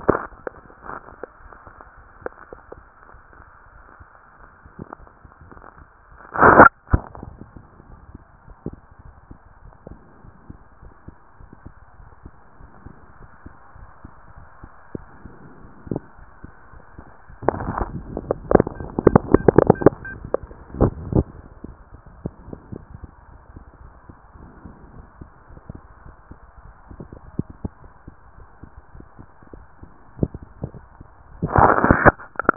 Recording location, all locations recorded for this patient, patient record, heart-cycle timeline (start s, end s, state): tricuspid valve (TV)
pulmonary valve (PV)+tricuspid valve (TV)
#Age: Child
#Sex: Male
#Height: 165.0 cm
#Weight: 110.8 kg
#Pregnancy status: False
#Murmur: Absent
#Murmur locations: nan
#Most audible location: nan
#Systolic murmur timing: nan
#Systolic murmur shape: nan
#Systolic murmur grading: nan
#Systolic murmur pitch: nan
#Systolic murmur quality: nan
#Diastolic murmur timing: nan
#Diastolic murmur shape: nan
#Diastolic murmur grading: nan
#Diastolic murmur pitch: nan
#Diastolic murmur quality: nan
#Outcome: Abnormal
#Campaign: 2014 screening campaign
0.00	9.06	unannotated
9.06	9.16	S1
9.16	9.30	systole
9.30	9.38	S2
9.38	9.62	diastole
9.62	9.72	S1
9.72	9.88	systole
9.88	9.98	S2
9.98	10.24	diastole
10.24	10.34	S1
10.34	10.50	systole
10.50	10.58	S2
10.58	10.82	diastole
10.82	10.92	S1
10.92	11.08	systole
11.08	11.16	S2
11.16	11.40	diastole
11.40	11.48	S1
11.48	11.64	systole
11.64	11.74	S2
11.74	11.98	diastole
11.98	12.08	S1
12.08	12.24	systole
12.24	12.34	S2
12.34	12.60	diastole
12.60	12.70	S1
12.70	12.86	systole
12.86	12.94	S2
12.94	13.20	diastole
13.20	13.28	S1
13.28	13.46	systole
13.46	13.54	S2
13.54	13.76	diastole
13.76	13.88	S1
13.88	14.04	systole
14.04	14.12	S2
14.12	14.36	diastole
14.36	14.46	S1
14.46	14.62	systole
14.62	14.72	S2
14.72	14.94	diastole
14.94	15.04	S1
15.04	15.22	systole
15.22	15.32	S2
15.32	15.58	diastole
15.58	32.56	unannotated